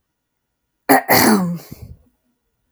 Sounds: Throat clearing